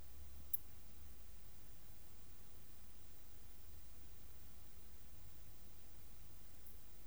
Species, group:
Poecilimon ornatus, Orthoptera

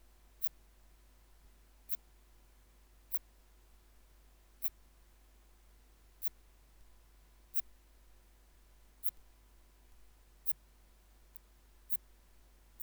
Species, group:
Phaneroptera falcata, Orthoptera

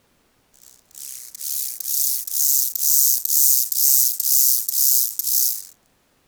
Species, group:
Chorthippus mollis, Orthoptera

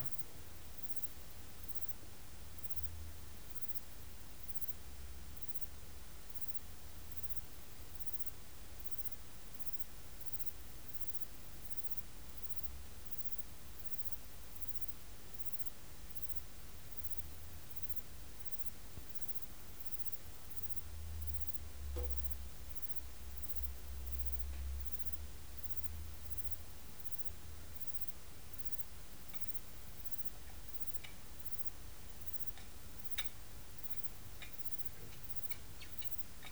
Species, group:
Platycleis albopunctata, Orthoptera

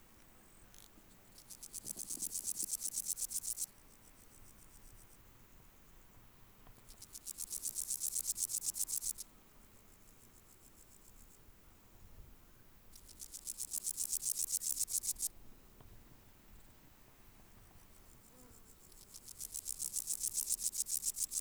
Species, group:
Pseudochorthippus parallelus, Orthoptera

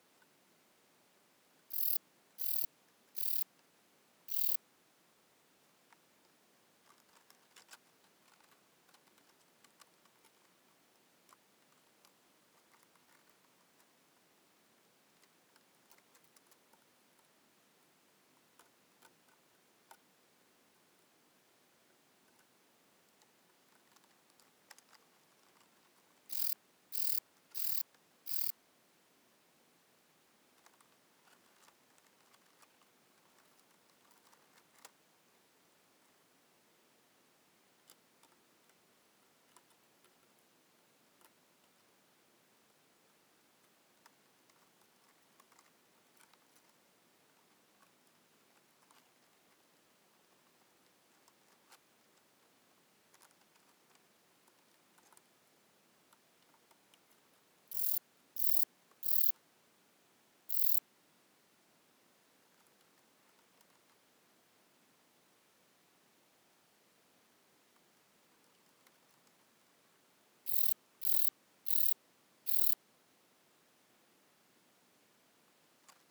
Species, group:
Rhacocleis buchichii, Orthoptera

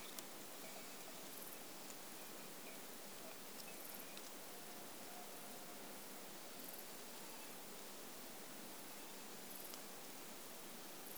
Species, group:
Pachytrachis gracilis, Orthoptera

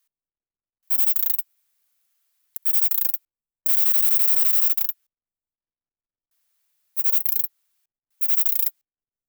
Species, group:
Platycleis affinis, Orthoptera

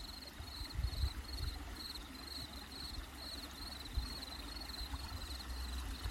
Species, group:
Gryllus campestris, Orthoptera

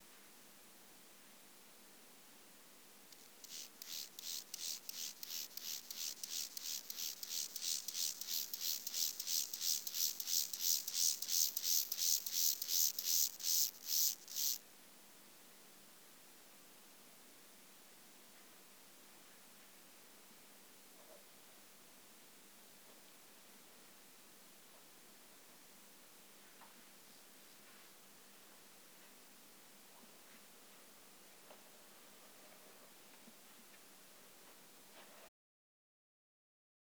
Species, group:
Chorthippus mollis, Orthoptera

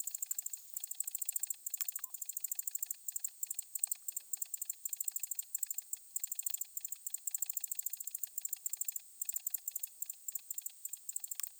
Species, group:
Decticus albifrons, Orthoptera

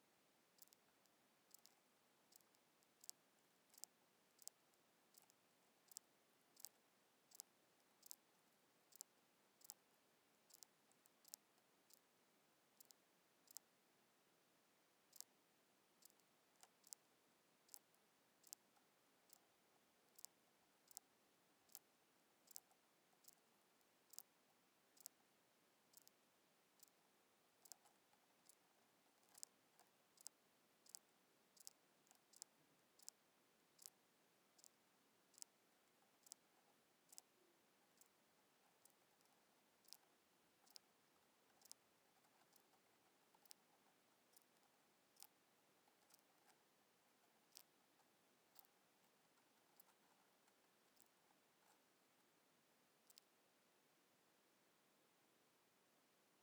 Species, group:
Ctenodecticus major, Orthoptera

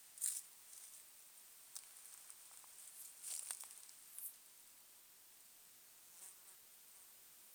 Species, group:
Poecilimon nonveilleri, Orthoptera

